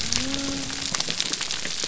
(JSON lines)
{"label": "biophony", "recorder": "SoundTrap 300"}